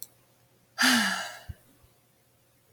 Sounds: Sigh